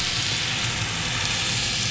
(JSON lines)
{"label": "anthrophony, boat engine", "recorder": "SoundTrap 500"}